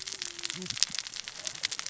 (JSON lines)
{"label": "biophony, cascading saw", "recorder": "SoundTrap 600 or HydroMoth"}